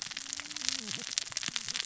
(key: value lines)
label: biophony, cascading saw
recorder: SoundTrap 600 or HydroMoth